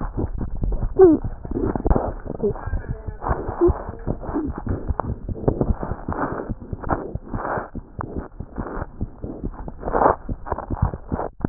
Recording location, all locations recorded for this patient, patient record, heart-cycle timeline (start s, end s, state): mitral valve (MV)
aortic valve (AV)+pulmonary valve (PV)+tricuspid valve (TV)+mitral valve (MV)
#Age: Infant
#Sex: Female
#Height: 69.0 cm
#Weight: 7.69 kg
#Pregnancy status: False
#Murmur: Unknown
#Murmur locations: nan
#Most audible location: nan
#Systolic murmur timing: nan
#Systolic murmur shape: nan
#Systolic murmur grading: nan
#Systolic murmur pitch: nan
#Systolic murmur quality: nan
#Diastolic murmur timing: nan
#Diastolic murmur shape: nan
#Diastolic murmur grading: nan
#Diastolic murmur pitch: nan
#Diastolic murmur quality: nan
#Outcome: Abnormal
#Campaign: 2015 screening campaign
0.00	4.04	unannotated
4.04	4.16	S1
4.16	4.25	systole
4.25	4.35	S2
4.35	4.44	diastole
4.44	4.53	S1
4.53	4.64	systole
4.64	4.75	S2
4.75	4.85	diastole
4.85	4.95	S1
4.95	5.06	systole
5.06	5.14	S2
5.14	5.23	diastole
5.23	5.36	S1
5.36	8.53	unannotated
8.53	8.65	S1
8.65	8.73	systole
8.73	8.86	S2
8.86	8.98	diastole
8.98	9.08	S1
9.08	9.20	systole
9.20	9.29	S2
9.29	9.39	diastole
9.39	9.52	S1
9.52	9.63	systole
9.63	9.73	S2
9.73	9.86	diastole
9.86	9.91	S1
9.91	11.49	unannotated